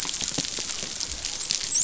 {"label": "biophony, dolphin", "recorder": "SoundTrap 500"}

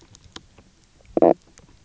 {"label": "biophony, knock croak", "recorder": "SoundTrap 300"}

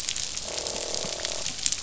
{"label": "biophony, croak", "recorder": "SoundTrap 500"}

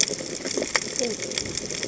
{"label": "biophony", "recorder": "HydroMoth"}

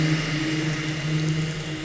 {"label": "anthrophony, boat engine", "recorder": "SoundTrap 500"}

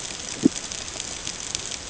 {"label": "ambient", "recorder": "HydroMoth"}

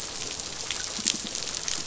{"label": "biophony", "recorder": "SoundTrap 500"}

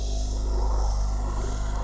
{"label": "anthrophony, boat engine", "recorder": "SoundTrap 300"}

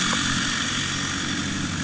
{"label": "anthrophony, boat engine", "recorder": "HydroMoth"}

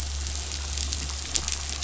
{"label": "anthrophony, boat engine", "recorder": "SoundTrap 500"}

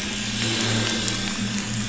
{"label": "anthrophony, boat engine", "recorder": "SoundTrap 500"}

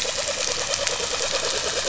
{"label": "anthrophony, boat engine", "recorder": "SoundTrap 500"}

